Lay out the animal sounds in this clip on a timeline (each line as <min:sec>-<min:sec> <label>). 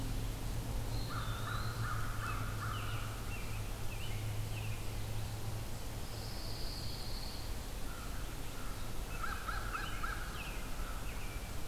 0:00.8-0:03.4 American Crow (Corvus brachyrhynchos)
0:00.8-0:02.0 Eastern Wood-Pewee (Contopus virens)
0:02.1-0:05.1 American Robin (Turdus migratorius)
0:05.9-0:07.5 Pine Warbler (Setophaga pinus)
0:07.8-0:11.2 American Crow (Corvus brachyrhynchos)
0:09.6-0:11.7 American Robin (Turdus migratorius)